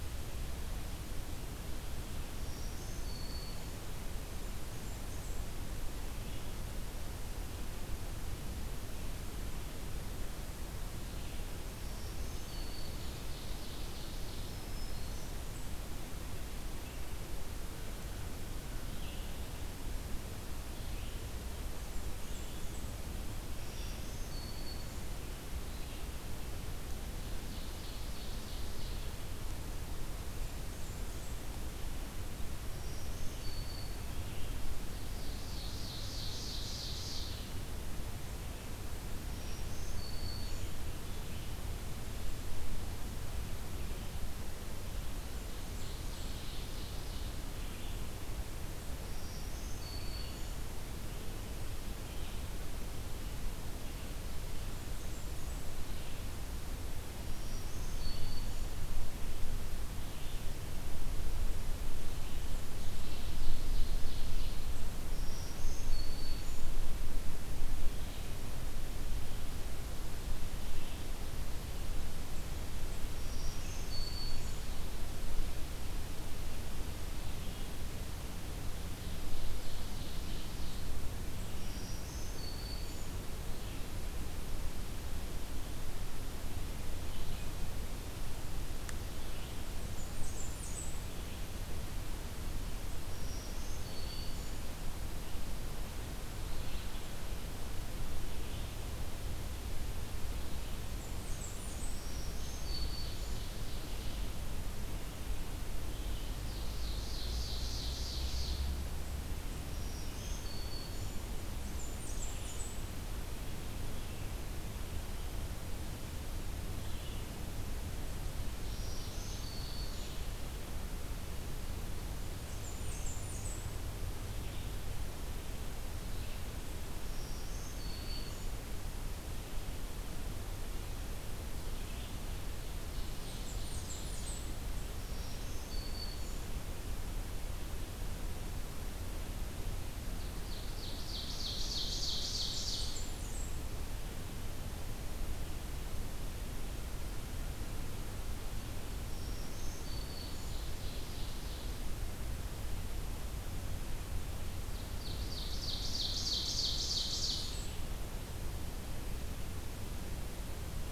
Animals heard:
Black-throated Green Warbler (Setophaga virens), Blackburnian Warbler (Setophaga fusca), Red-eyed Vireo (Vireo olivaceus), Ovenbird (Seiurus aurocapilla)

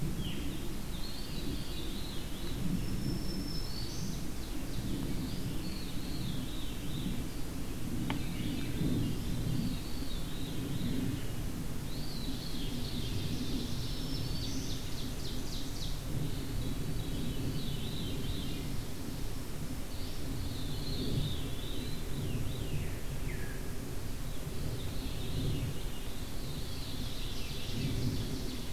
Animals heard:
Ovenbird (Seiurus aurocapilla), Eastern Wood-Pewee (Contopus virens), Red-eyed Vireo (Vireo olivaceus), Black-throated Green Warbler (Setophaga virens), Veery (Catharus fuscescens)

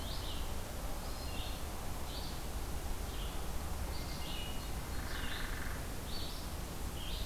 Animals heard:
Red-eyed Vireo (Vireo olivaceus), Hermit Thrush (Catharus guttatus), Hairy Woodpecker (Dryobates villosus)

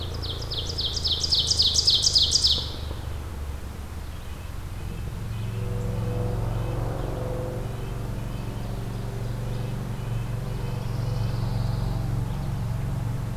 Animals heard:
Pine Warbler (Setophaga pinus), Red-breasted Nuthatch (Sitta canadensis), Ovenbird (Seiurus aurocapilla)

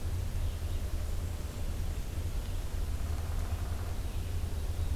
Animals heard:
Black-and-white Warbler (Mniotilta varia), Red-eyed Vireo (Vireo olivaceus), Downy Woodpecker (Dryobates pubescens)

